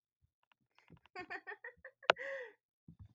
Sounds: Laughter